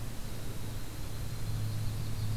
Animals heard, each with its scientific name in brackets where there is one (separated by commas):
Black-throated Blue Warbler (Setophaga caerulescens), Yellow-rumped Warbler (Setophaga coronata)